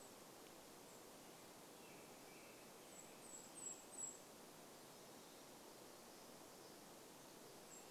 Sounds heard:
American Robin song
Golden-crowned Kinglet song

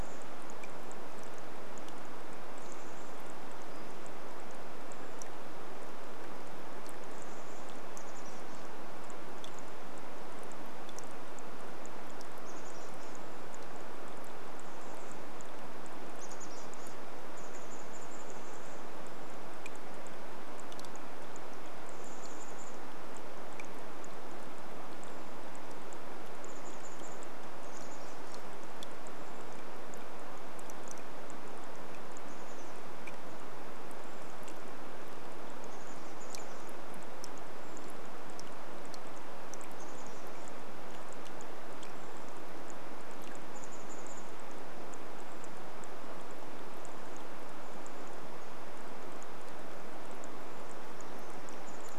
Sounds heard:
rain
Chestnut-backed Chickadee call
Brown Creeper call
Pacific-slope Flycatcher call

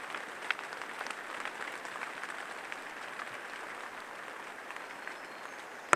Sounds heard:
rain
warbler song

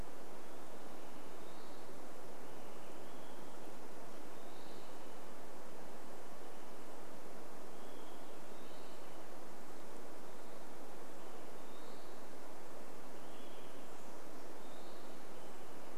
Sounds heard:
Western Wood-Pewee song
Olive-sided Flycatcher song
Olive-sided Flycatcher call

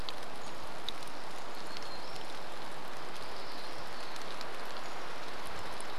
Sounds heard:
rain
warbler song
unidentified bird chip note

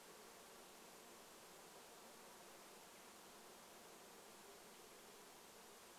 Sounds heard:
insect buzz

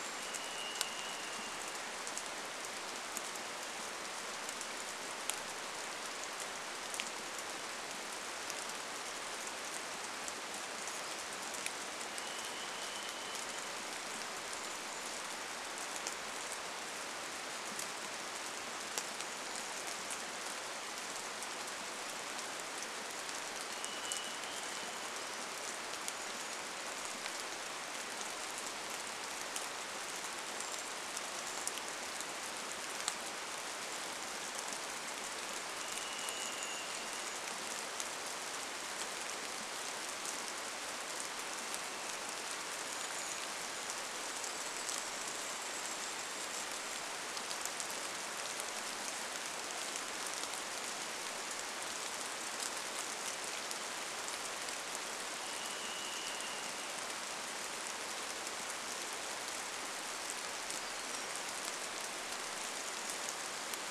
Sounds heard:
rain
Brown Creeper call
warbler song
Varied Thrush song
unidentified sound

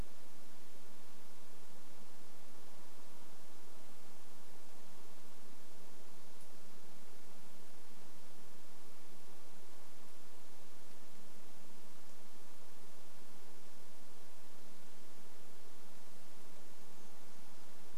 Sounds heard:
insect buzz
Brown Creeper song

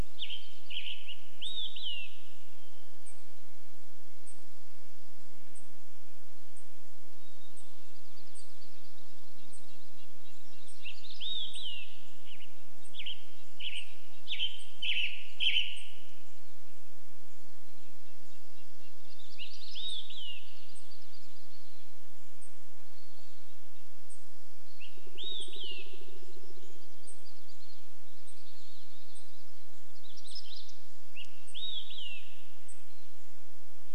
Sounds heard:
Purple Finch song
unidentified bird chip note
Olive-sided Flycatcher song
woodpecker drumming
Western Tanager song
Red-breasted Nuthatch song
Hermit Thrush song
warbler song

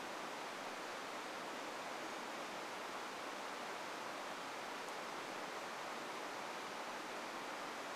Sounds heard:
Brown Creeper call

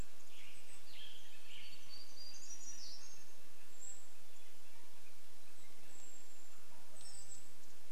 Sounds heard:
warbler song
Canada Jay call
Western Tanager song
Golden-crowned Kinglet call

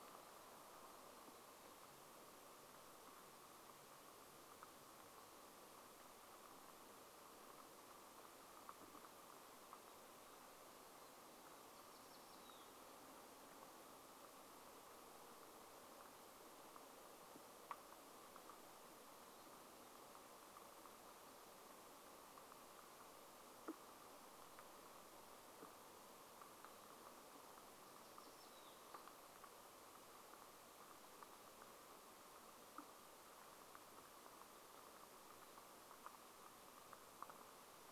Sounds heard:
unidentified sound

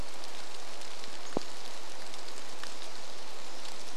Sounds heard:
Pacific Wren song
rain
Pacific-slope Flycatcher call

